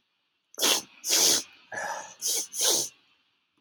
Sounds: Sniff